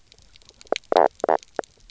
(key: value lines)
label: biophony, knock croak
recorder: SoundTrap 300